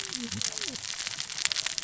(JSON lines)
{"label": "biophony, cascading saw", "recorder": "SoundTrap 600 or HydroMoth"}